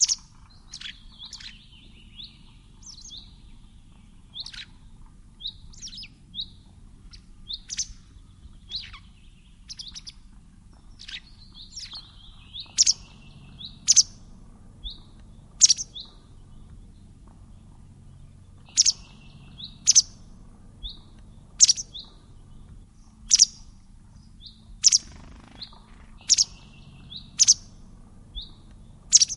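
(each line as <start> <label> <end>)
0.0 Birds chirping calmly and lightly in the foreground. 29.4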